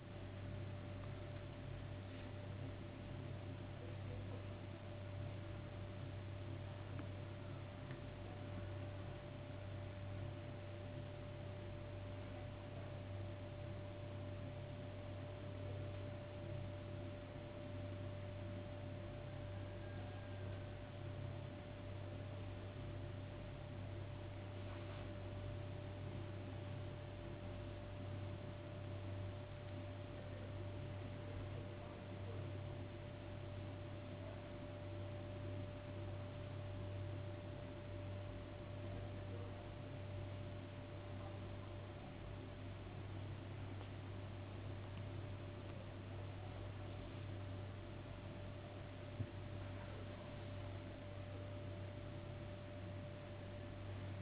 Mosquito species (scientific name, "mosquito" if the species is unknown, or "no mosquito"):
no mosquito